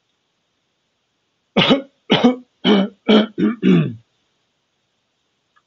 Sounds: Cough